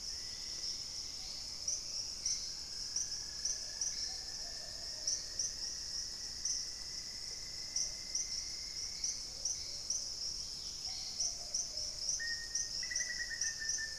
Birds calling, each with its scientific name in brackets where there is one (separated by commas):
Black-faced Antthrush (Formicarius analis), Hauxwell's Thrush (Turdus hauxwelli), unidentified bird, Cinnamon-rumped Foliage-gleaner (Philydor pyrrhodes), Dusky-capped Greenlet (Pachysylvia hypoxantha), Plumbeous Pigeon (Patagioenas plumbea)